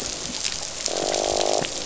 {"label": "biophony, croak", "recorder": "SoundTrap 500"}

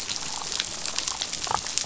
{"label": "biophony, damselfish", "recorder": "SoundTrap 500"}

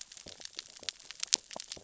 {"label": "biophony, sea urchins (Echinidae)", "recorder": "SoundTrap 600 or HydroMoth"}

